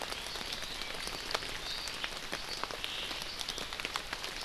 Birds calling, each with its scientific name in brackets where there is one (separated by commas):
Omao (Myadestes obscurus)